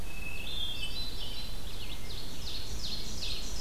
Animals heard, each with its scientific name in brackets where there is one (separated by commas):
Ovenbird (Seiurus aurocapilla), Hermit Thrush (Catharus guttatus), Red-eyed Vireo (Vireo olivaceus)